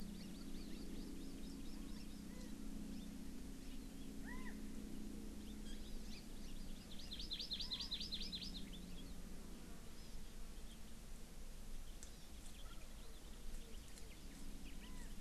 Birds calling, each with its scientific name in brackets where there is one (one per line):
Chinese Hwamei (Garrulax canorus)
Hawaii Amakihi (Chlorodrepanis virens)